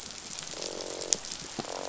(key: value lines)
label: biophony, croak
recorder: SoundTrap 500